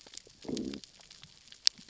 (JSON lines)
{"label": "biophony, growl", "recorder": "SoundTrap 600 or HydroMoth"}